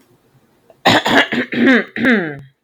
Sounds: Throat clearing